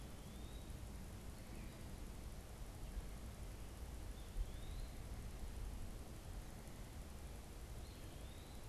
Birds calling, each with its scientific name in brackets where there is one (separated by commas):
Eastern Wood-Pewee (Contopus virens)